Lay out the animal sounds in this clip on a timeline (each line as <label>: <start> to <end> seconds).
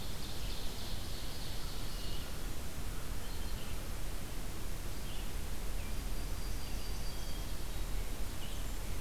Ovenbird (Seiurus aurocapilla): 0.0 to 2.4 seconds
Red-eyed Vireo (Vireo olivaceus): 0.0 to 9.0 seconds
Yellow-rumped Warbler (Setophaga coronata): 5.7 to 7.6 seconds
Hermit Thrush (Catharus guttatus): 7.1 to 8.0 seconds